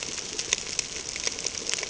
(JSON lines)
{"label": "ambient", "recorder": "HydroMoth"}